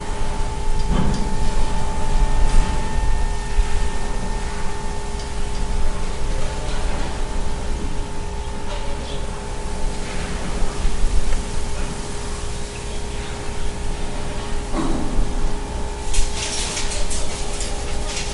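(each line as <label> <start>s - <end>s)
A continuous blend of urban noises with a high-pitched steady buzzing. 0.0s - 18.3s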